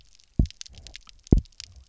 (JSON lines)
{"label": "biophony, double pulse", "recorder": "SoundTrap 300"}